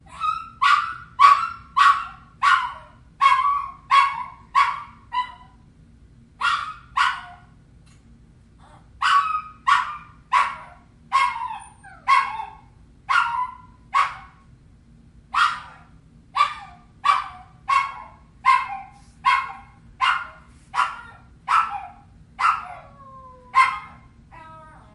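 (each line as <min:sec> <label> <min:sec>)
0:00.1 A small dog barks in a high-pitched tone repeatedly. 0:05.4
0:06.4 A small dog barks in a high-pitched tone repeatedly. 0:07.3
0:08.9 A small dog barks in a high-pitched tone repeatedly. 0:14.3
0:15.3 A small dog barks in a high-pitched tone repeatedly. 0:24.3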